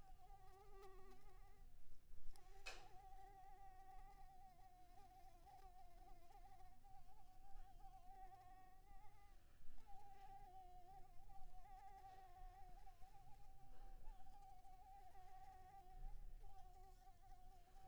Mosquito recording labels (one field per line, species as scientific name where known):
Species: Anopheles maculipalpis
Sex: female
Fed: unfed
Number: one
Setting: cup